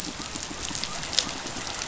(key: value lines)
label: biophony
recorder: SoundTrap 500